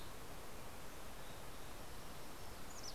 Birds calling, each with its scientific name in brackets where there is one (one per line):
Green-tailed Towhee (Pipilo chlorurus)
Mountain Chickadee (Poecile gambeli)